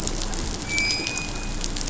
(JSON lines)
{"label": "anthrophony, boat engine", "recorder": "SoundTrap 500"}